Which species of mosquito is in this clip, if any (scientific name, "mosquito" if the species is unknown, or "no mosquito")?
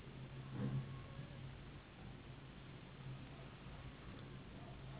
Anopheles gambiae s.s.